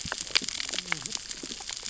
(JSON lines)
{"label": "biophony, cascading saw", "recorder": "SoundTrap 600 or HydroMoth"}